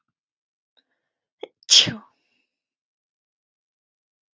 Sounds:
Sneeze